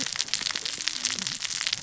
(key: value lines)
label: biophony, cascading saw
recorder: SoundTrap 600 or HydroMoth